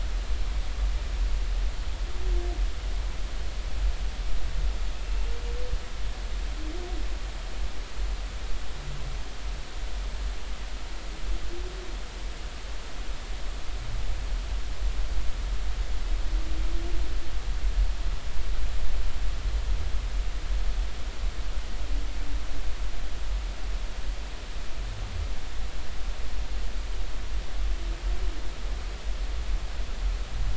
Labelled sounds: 5.0	5.3	humpback whale, 2.6 to 2.8 kHz

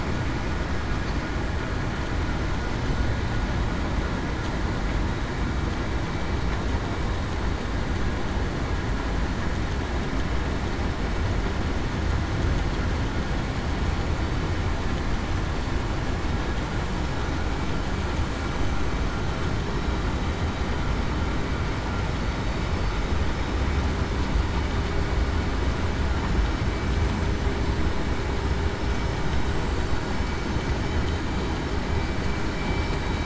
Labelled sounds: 22.2	22.6	vessel noise, 3.7 to 3.8 kHz

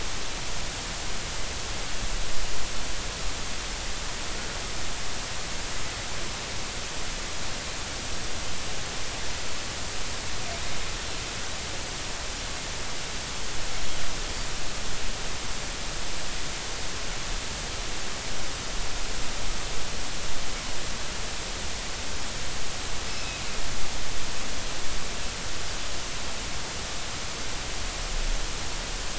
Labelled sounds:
23.1	23.5	Pacific white-sided dolphin, 2.4 to 5.3 kHz

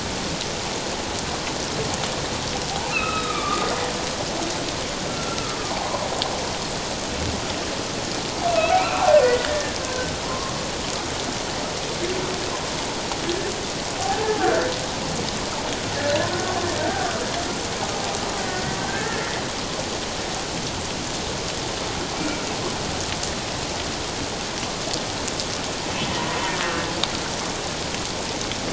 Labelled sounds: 2.9	3.7	humpback whale, 1.1 to 3.9 kHz
5.1	5.4	humpback whale, 1.3 to 1.4 kHz
8.7	10.5	humpback whale, 1.0 to 2.8 kHz
14.0	14.7	humpback whale, 0.78 to 1.8 kHz
16.8	17.1	humpback whale, 1.4 to 1.7 kHz
18.4	19.3	humpback whale, 1.5 to 2.0 kHz
22.1	22.4	humpback whale, 2.2 to 2.4 kHz

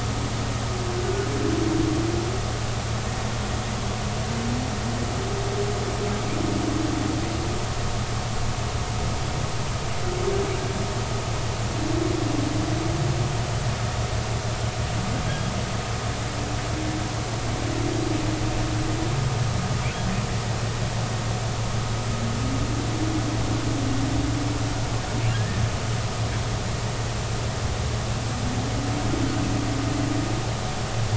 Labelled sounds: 25.3	25.6	humpback whale, 1.5 to 1.9 kHz

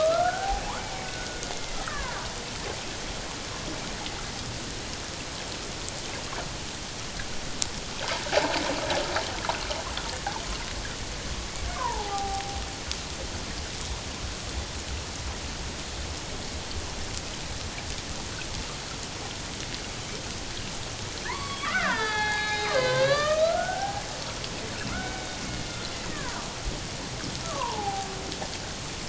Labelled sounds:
1.0	2.2	killer whale, Bigg's (transient), 0.91 to 2.2 kHz
8.3	8.6	water noise, 0.78 to 1.1 kHz
11.7	12.6	killer whale, Bigg's (transient), 0.78 to 1.2 kHz
21.2	24.0	killer whale, Bigg's (transient), 0.78 to 6.3 kHz
24.9	26.3	killer whale, Bigg's (transient), 1.3 to 2.3 kHz
27.4	28.1	killer whale, Bigg's (transient), 0.78 to 1.4 kHz

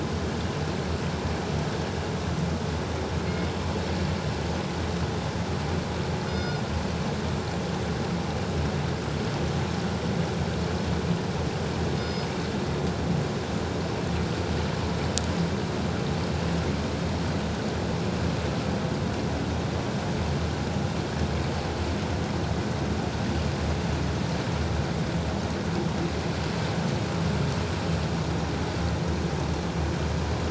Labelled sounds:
6.3	6.6	killer whale, northern resident, G clan, 1.4 to 5.1 kHz
12.0	12.3	killer whale, northern resident, G clan, 5.0 to 5.1 kHz

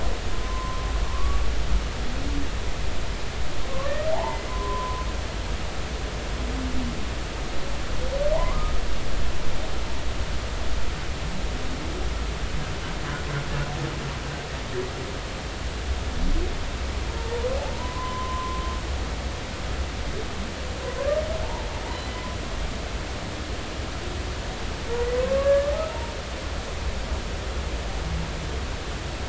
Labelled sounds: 0.4	1.4	humpback whale, 0.96 to 1.2 kHz
4.1	5.1	humpback whale, 0.80 to 2.1 kHz
8.3	8.7	humpback whale, 0.80 to 1.3 kHz
17.7	18.6	humpback whale, 0.90 to 3.1 kHz
21.4	21.7	humpback whale, 0.83 to 1.0 kHz
25.2	26.1	humpback whale, 0.86 to 1.8 kHz

